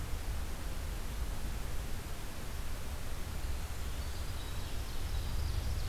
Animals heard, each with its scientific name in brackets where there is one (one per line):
Winter Wren (Troglodytes hiemalis)
Ovenbird (Seiurus aurocapilla)